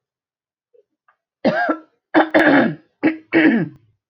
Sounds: Throat clearing